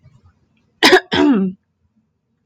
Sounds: Throat clearing